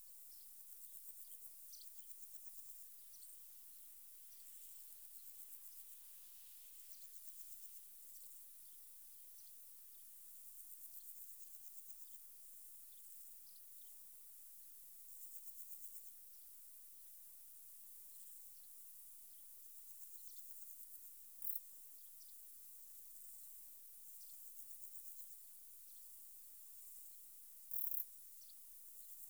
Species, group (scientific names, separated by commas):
Pseudochorthippus parallelus, Orthoptera